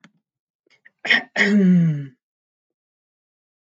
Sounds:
Throat clearing